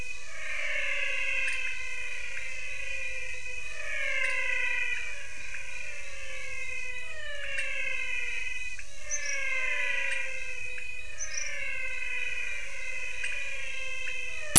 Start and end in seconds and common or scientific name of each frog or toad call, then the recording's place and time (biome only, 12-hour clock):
0.0	14.3	pointedbelly frog
0.0	14.5	menwig frog
Cerrado, 6:30pm